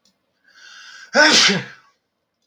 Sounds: Sneeze